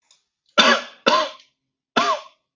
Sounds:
Cough